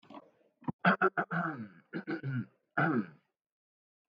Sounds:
Throat clearing